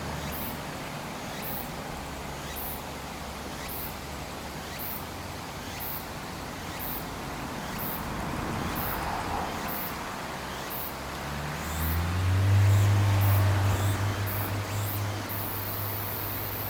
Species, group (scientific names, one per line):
Meimuna opalifera
Cicadidae